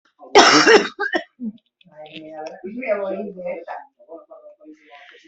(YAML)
expert_labels:
- quality: ok
  cough_type: dry
  dyspnea: false
  wheezing: false
  stridor: false
  choking: false
  congestion: false
  nothing: true
  diagnosis: lower respiratory tract infection
  severity: mild
- quality: poor
  cough_type: dry
  dyspnea: false
  wheezing: false
  stridor: false
  choking: false
  congestion: false
  nothing: true
  diagnosis: COVID-19
  severity: severe
- quality: good
  cough_type: wet
  dyspnea: false
  wheezing: false
  stridor: false
  choking: false
  congestion: false
  nothing: true
  diagnosis: lower respiratory tract infection
  severity: mild
- quality: good
  cough_type: dry
  dyspnea: false
  wheezing: false
  stridor: false
  choking: false
  congestion: false
  nothing: true
  diagnosis: upper respiratory tract infection
  severity: mild
age: 48
gender: female
respiratory_condition: true
fever_muscle_pain: false
status: symptomatic